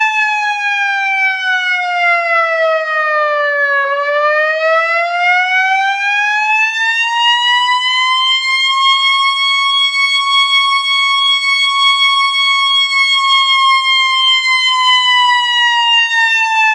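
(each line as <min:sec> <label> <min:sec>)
0:00.0 A loud old police siren is playing. 0:16.7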